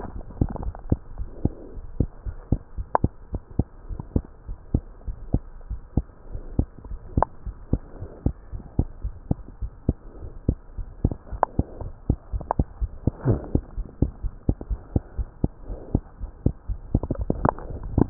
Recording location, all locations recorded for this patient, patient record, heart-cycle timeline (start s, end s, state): tricuspid valve (TV)
aortic valve (AV)+pulmonary valve (PV)+tricuspid valve (TV)+mitral valve (MV)
#Age: Child
#Sex: Male
#Height: 81.0 cm
#Weight: 10.725 kg
#Pregnancy status: False
#Murmur: Absent
#Murmur locations: nan
#Most audible location: nan
#Systolic murmur timing: nan
#Systolic murmur shape: nan
#Systolic murmur grading: nan
#Systolic murmur pitch: nan
#Systolic murmur quality: nan
#Diastolic murmur timing: nan
#Diastolic murmur shape: nan
#Diastolic murmur grading: nan
#Diastolic murmur pitch: nan
#Diastolic murmur quality: nan
#Outcome: Abnormal
#Campaign: 2015 screening campaign
0.00	3.14	unannotated
3.14	3.32	diastole
3.32	3.42	S1
3.42	3.56	systole
3.56	3.68	S2
3.68	3.88	diastole
3.88	4.00	S1
4.00	4.12	systole
4.12	4.26	S2
4.26	4.44	diastole
4.44	4.56	S1
4.56	4.70	systole
4.70	4.86	S2
4.86	5.04	diastole
5.04	5.16	S1
5.16	5.32	systole
5.32	5.46	S2
5.46	5.64	diastole
5.64	5.80	S1
5.80	5.94	systole
5.94	6.06	S2
6.06	6.26	diastole
6.26	6.42	S1
6.42	6.56	systole
6.56	6.70	S2
6.70	6.86	diastole
6.86	7.00	S1
7.00	7.14	systole
7.14	7.28	S2
7.28	7.46	diastole
7.46	7.56	S1
7.56	7.72	systole
7.72	7.82	S2
7.82	8.00	diastole
8.00	8.10	S1
8.10	8.22	systole
8.22	8.34	S2
8.34	8.52	diastole
8.52	8.64	S1
8.64	8.78	systole
8.78	8.90	S2
8.90	9.02	diastole
9.02	9.16	S1
9.16	9.28	systole
9.28	9.44	S2
9.44	9.62	diastole
9.62	9.70	S1
9.70	9.84	systole
9.84	9.98	S2
9.98	10.16	diastole
10.16	10.30	S1
10.30	10.46	systole
10.46	10.60	S2
10.60	10.76	diastole
10.76	10.88	S1
10.88	11.02	systole
11.02	11.16	S2
11.16	11.32	diastole
11.32	11.42	S1
11.42	11.54	systole
11.54	11.68	S2
11.68	11.80	diastole
11.80	11.92	S1
11.92	12.06	systole
12.06	12.18	S2
12.18	12.32	diastole
12.32	12.46	S1
12.46	12.54	systole
12.54	12.66	S2
12.66	12.80	diastole
12.80	12.92	S1
12.92	13.06	systole
13.06	13.14	S2
13.14	13.26	diastole
13.26	13.42	S1
13.42	13.52	systole
13.52	13.64	S2
13.64	13.76	diastole
13.76	13.88	S1
13.88	13.98	systole
13.98	14.12	S2
14.12	14.24	diastole
14.24	14.34	S1
14.34	14.44	systole
14.44	14.56	S2
14.56	14.70	diastole
14.70	14.80	S1
14.80	14.94	systole
14.94	15.04	S2
15.04	15.18	diastole
15.18	15.28	S1
15.28	15.40	systole
15.40	15.54	S2
15.54	15.68	diastole
15.68	15.80	S1
15.80	15.92	systole
15.92	16.04	S2
16.04	16.22	diastole
16.22	16.32	S1
16.32	16.42	systole
16.42	16.54	S2
16.54	16.68	diastole
16.68	18.10	unannotated